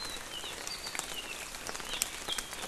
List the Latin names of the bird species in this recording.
Himatione sanguinea